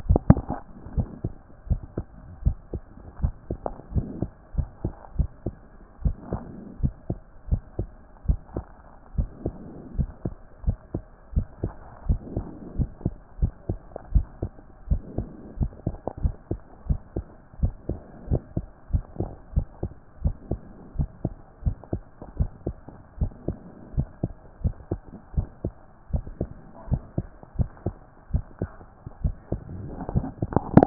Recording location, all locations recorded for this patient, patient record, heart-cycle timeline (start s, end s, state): tricuspid valve (TV)
aortic valve (AV)+pulmonary valve (PV)+tricuspid valve (TV)+mitral valve (MV)
#Age: Child
#Sex: Male
#Height: 122.0 cm
#Weight: 26.1 kg
#Pregnancy status: False
#Murmur: Absent
#Murmur locations: nan
#Most audible location: nan
#Systolic murmur timing: nan
#Systolic murmur shape: nan
#Systolic murmur grading: nan
#Systolic murmur pitch: nan
#Systolic murmur quality: nan
#Diastolic murmur timing: nan
#Diastolic murmur shape: nan
#Diastolic murmur grading: nan
#Diastolic murmur pitch: nan
#Diastolic murmur quality: nan
#Outcome: Abnormal
#Campaign: 2014 screening campaign
0.00	0.96	unannotated
0.96	1.08	S1
1.08	1.24	systole
1.24	1.32	S2
1.32	1.68	diastole
1.68	1.80	S1
1.80	1.96	systole
1.96	2.06	S2
2.06	2.44	diastole
2.44	2.56	S1
2.56	2.72	systole
2.72	2.82	S2
2.82	3.22	diastole
3.22	3.34	S1
3.34	3.50	systole
3.50	3.58	S2
3.58	3.94	diastole
3.94	4.08	S1
4.08	4.20	systole
4.20	4.30	S2
4.30	4.56	diastole
4.56	4.68	S1
4.68	4.84	systole
4.84	4.92	S2
4.92	5.18	diastole
5.18	5.30	S1
5.30	5.46	systole
5.46	5.54	S2
5.54	6.04	diastole
6.04	6.16	S1
6.16	6.32	systole
6.32	6.42	S2
6.42	6.82	diastole
6.82	6.94	S1
6.94	7.08	systole
7.08	7.18	S2
7.18	7.50	diastole
7.50	7.62	S1
7.62	7.78	systole
7.78	7.88	S2
7.88	8.28	diastole
8.28	8.40	S1
8.40	8.56	systole
8.56	8.64	S2
8.64	9.16	diastole
9.16	9.28	S1
9.28	9.44	systole
9.44	9.54	S2
9.54	9.96	diastole
9.96	10.10	S1
10.10	10.24	systole
10.24	10.34	S2
10.34	10.66	diastole
10.66	10.78	S1
10.78	10.94	systole
10.94	11.02	S2
11.02	11.34	diastole
11.34	11.46	S1
11.46	11.62	systole
11.62	11.72	S2
11.72	12.08	diastole
12.08	12.20	S1
12.20	12.36	systole
12.36	12.46	S2
12.46	12.78	diastole
12.78	12.90	S1
12.90	13.04	systole
13.04	13.14	S2
13.14	13.40	diastole
13.40	13.52	S1
13.52	13.68	systole
13.68	13.78	S2
13.78	14.12	diastole
14.12	14.26	S1
14.26	14.42	systole
14.42	14.50	S2
14.50	14.90	diastole
14.90	15.02	S1
15.02	15.18	systole
15.18	15.28	S2
15.28	15.58	diastole
15.58	15.72	S1
15.72	15.86	systole
15.86	15.96	S2
15.96	16.22	diastole
16.22	16.34	S1
16.34	16.50	systole
16.50	16.60	S2
16.60	16.88	diastole
16.88	17.00	S1
17.00	17.16	systole
17.16	17.26	S2
17.26	17.62	diastole
17.62	17.74	S1
17.74	17.90	systole
17.90	17.98	S2
17.98	18.30	diastole
18.30	18.42	S1
18.42	18.56	systole
18.56	18.66	S2
18.66	18.92	diastole
18.92	19.04	S1
19.04	19.20	systole
19.20	19.30	S2
19.30	19.54	diastole
19.54	19.66	S1
19.66	19.82	systole
19.82	19.92	S2
19.92	20.24	diastole
20.24	20.36	S1
20.36	20.50	systole
20.50	20.60	S2
20.60	20.98	diastole
20.98	21.08	S1
21.08	21.24	systole
21.24	21.34	S2
21.34	21.64	diastole
21.64	21.76	S1
21.76	21.92	systole
21.92	22.02	S2
22.02	22.38	diastole
22.38	22.50	S1
22.50	22.66	systole
22.66	22.76	S2
22.76	23.20	diastole
23.20	23.32	S1
23.32	23.48	systole
23.48	23.58	S2
23.58	23.96	diastole
23.96	24.08	S1
24.08	24.22	systole
24.22	24.32	S2
24.32	24.64	diastole
24.64	24.74	S1
24.74	24.90	systole
24.90	25.00	S2
25.00	25.36	diastole
25.36	25.48	S1
25.48	25.64	systole
25.64	25.72	S2
25.72	26.12	diastole
26.12	26.24	S1
26.24	26.40	systole
26.40	26.50	S2
26.50	26.90	diastole
26.90	27.02	S1
27.02	27.16	systole
27.16	27.26	S2
27.26	27.58	diastole
27.58	27.70	S1
27.70	27.86	systole
27.86	27.94	S2
27.94	28.32	diastole
28.32	28.44	S1
28.44	28.60	systole
28.60	28.70	S2
28.70	29.22	diastole
29.22	29.34	S1
29.34	29.52	systole
29.52	29.62	S2
29.62	30.14	diastole
30.14	30.86	unannotated